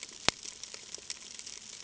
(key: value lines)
label: ambient
recorder: HydroMoth